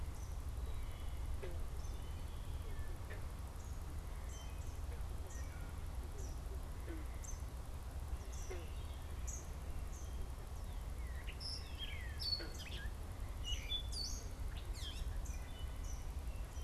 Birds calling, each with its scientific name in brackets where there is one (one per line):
Gray Catbird (Dumetella carolinensis)
Eastern Kingbird (Tyrannus tyrannus)